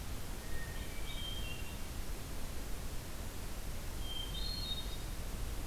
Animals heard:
Hermit Thrush (Catharus guttatus)

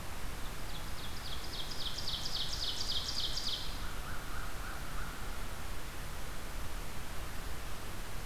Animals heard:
American Crow (Corvus brachyrhynchos)
Ovenbird (Seiurus aurocapilla)

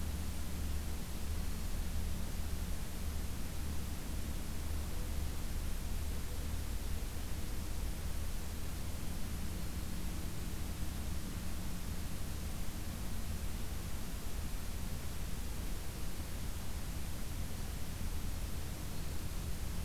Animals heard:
Black-throated Green Warbler (Setophaga virens)

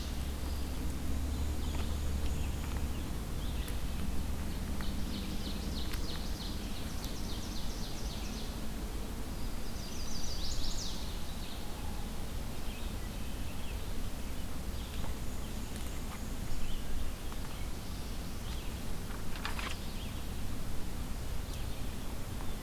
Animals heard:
Black-and-white Warbler (Mniotilta varia)
Chestnut-sided Warbler (Setophaga pensylvanica)
Ovenbird (Seiurus aurocapilla)

